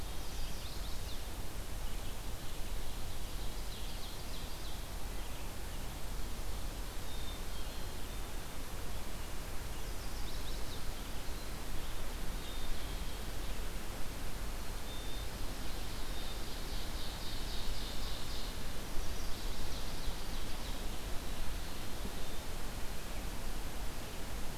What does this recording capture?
Chestnut-sided Warbler, Ovenbird, Black-capped Chickadee